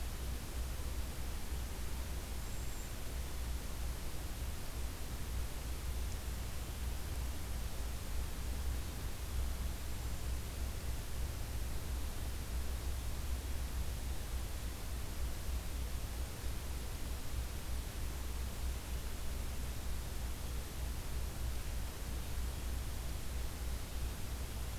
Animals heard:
Cedar Waxwing (Bombycilla cedrorum)

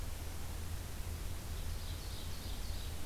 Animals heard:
Ovenbird (Seiurus aurocapilla)

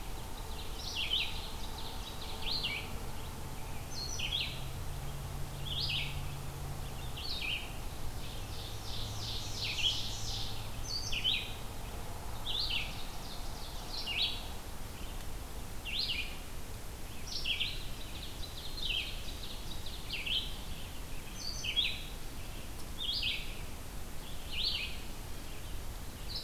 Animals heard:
Red-eyed Vireo (Vireo olivaceus)
Ovenbird (Seiurus aurocapilla)

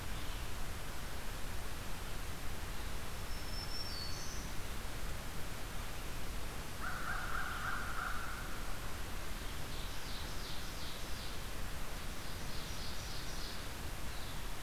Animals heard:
Black-throated Green Warbler (Setophaga virens)
American Crow (Corvus brachyrhynchos)
Red-eyed Vireo (Vireo olivaceus)
Ovenbird (Seiurus aurocapilla)

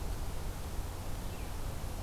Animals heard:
Red-eyed Vireo (Vireo olivaceus)

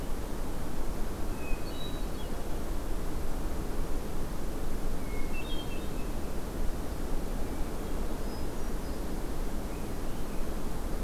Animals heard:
Hermit Thrush (Catharus guttatus)

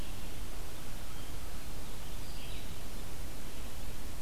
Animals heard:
Red-eyed Vireo (Vireo olivaceus)

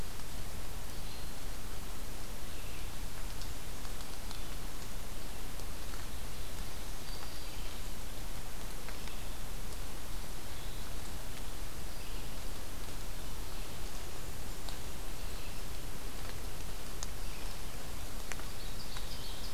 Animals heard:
Ovenbird (Seiurus aurocapilla)
Black-throated Green Warbler (Setophaga virens)
Red-eyed Vireo (Vireo olivaceus)

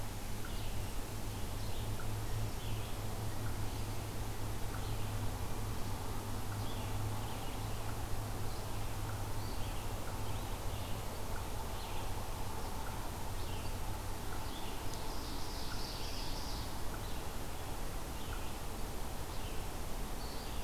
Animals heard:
Eastern Wood-Pewee (Contopus virens)
Ovenbird (Seiurus aurocapilla)
Red-eyed Vireo (Vireo olivaceus)

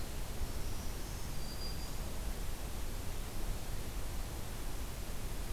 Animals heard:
Black-throated Green Warbler (Setophaga virens)

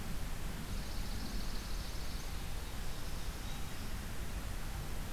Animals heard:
Swamp Sparrow (Melospiza georgiana)

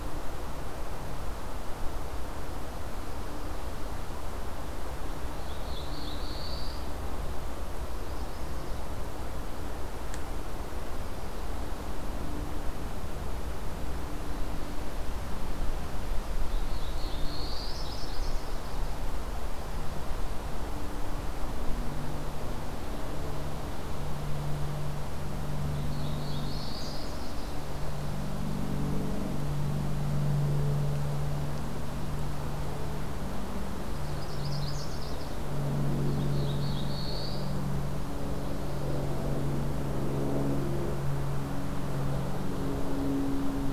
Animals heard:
Chestnut-sided Warbler (Setophaga pensylvanica)
Black-throated Blue Warbler (Setophaga caerulescens)

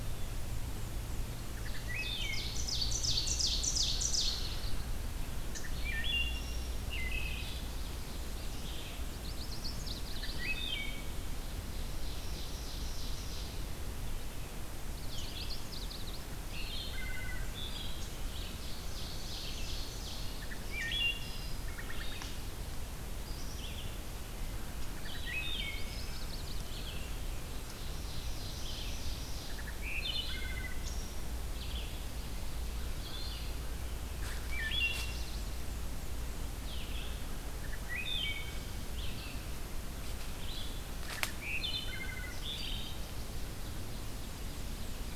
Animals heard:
Ovenbird (Seiurus aurocapilla)
Black-and-white Warbler (Mniotilta varia)
Chestnut-sided Warbler (Setophaga pensylvanica)
Red-eyed Vireo (Vireo olivaceus)
Wood Thrush (Hylocichla mustelina)

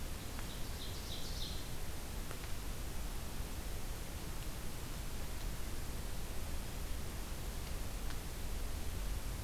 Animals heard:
Ovenbird (Seiurus aurocapilla)

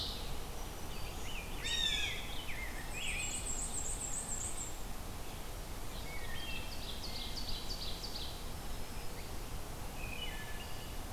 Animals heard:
Rose-breasted Grosbeak (Pheucticus ludovicianus)
Black-throated Green Warbler (Setophaga virens)
Ovenbird (Seiurus aurocapilla)
Blue Jay (Cyanocitta cristata)
Black-and-white Warbler (Mniotilta varia)
Wood Thrush (Hylocichla mustelina)

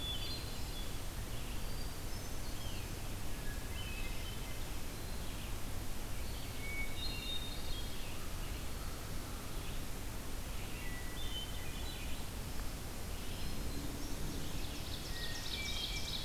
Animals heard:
American Crow (Corvus brachyrhynchos)
Red-eyed Vireo (Vireo olivaceus)
Hermit Thrush (Catharus guttatus)
Ovenbird (Seiurus aurocapilla)

